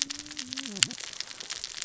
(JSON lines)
{"label": "biophony, cascading saw", "recorder": "SoundTrap 600 or HydroMoth"}